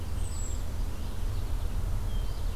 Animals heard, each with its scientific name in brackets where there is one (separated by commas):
American Goldfinch (Spinus tristis), Hermit Thrush (Catharus guttatus), Red-eyed Vireo (Vireo olivaceus)